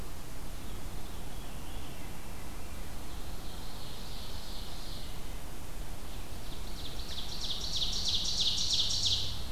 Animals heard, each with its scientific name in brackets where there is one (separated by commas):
Ovenbird (Seiurus aurocapilla), Veery (Catharus fuscescens)